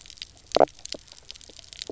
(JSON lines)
{"label": "biophony, knock croak", "recorder": "SoundTrap 300"}